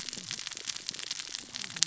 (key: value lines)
label: biophony, cascading saw
recorder: SoundTrap 600 or HydroMoth